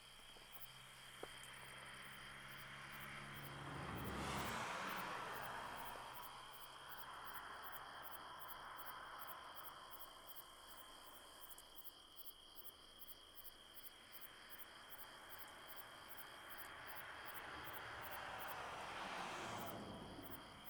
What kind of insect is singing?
orthopteran